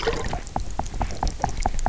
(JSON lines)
{"label": "biophony, knock", "recorder": "SoundTrap 300"}